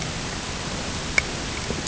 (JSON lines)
{"label": "ambient", "recorder": "HydroMoth"}